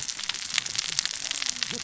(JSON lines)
{"label": "biophony, cascading saw", "recorder": "SoundTrap 600 or HydroMoth"}